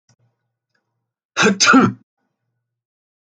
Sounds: Sneeze